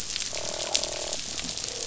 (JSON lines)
{"label": "biophony, croak", "recorder": "SoundTrap 500"}